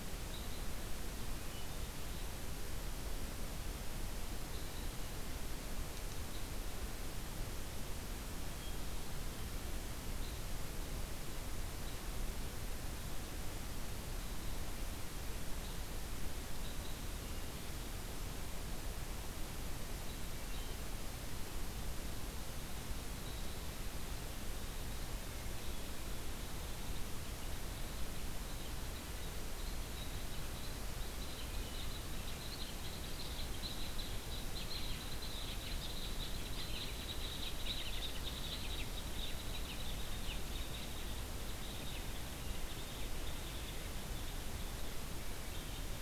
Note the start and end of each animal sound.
[0.17, 0.67] Red Crossbill (Loxia curvirostra)
[1.11, 1.99] Hermit Thrush (Catharus guttatus)
[4.28, 4.96] Hermit Thrush (Catharus guttatus)
[6.22, 6.78] Hermit Thrush (Catharus guttatus)
[8.47, 9.33] Hermit Thrush (Catharus guttatus)
[10.14, 10.40] Red Crossbill (Loxia curvirostra)
[15.52, 17.15] Red Crossbill (Loxia curvirostra)
[19.86, 23.78] Red Crossbill (Loxia curvirostra)
[24.49, 46.01] Red Crossbill (Loxia curvirostra)

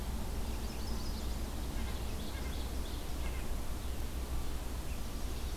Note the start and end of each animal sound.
[0.31, 1.35] Chestnut-sided Warbler (Setophaga pensylvanica)
[1.50, 3.16] Ovenbird (Seiurus aurocapilla)
[1.66, 3.67] White-breasted Nuthatch (Sitta carolinensis)

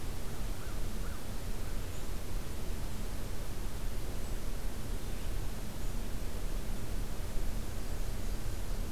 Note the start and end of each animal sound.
[0.45, 1.32] American Crow (Corvus brachyrhynchos)

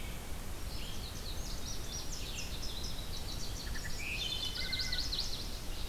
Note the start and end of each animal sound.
[0.00, 5.89] Red-eyed Vireo (Vireo olivaceus)
[0.54, 4.23] Indigo Bunting (Passerina cyanea)
[3.25, 5.33] Wood Thrush (Hylocichla mustelina)
[3.27, 5.02] Black-and-white Warbler (Mniotilta varia)
[4.32, 5.53] Chestnut-sided Warbler (Setophaga pensylvanica)
[5.17, 5.89] Ovenbird (Seiurus aurocapilla)

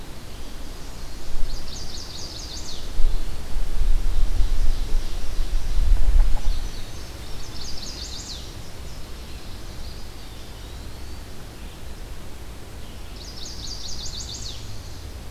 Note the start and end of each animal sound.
[1.40, 2.88] Chestnut-sided Warbler (Setophaga pensylvanica)
[3.62, 6.23] Ovenbird (Seiurus aurocapilla)
[6.26, 7.50] Indigo Bunting (Passerina cyanea)
[7.20, 9.83] Chestnut-sided Warbler (Setophaga pensylvanica)
[9.76, 11.38] Eastern Wood-Pewee (Contopus virens)
[13.12, 14.70] Chestnut-sided Warbler (Setophaga pensylvanica)

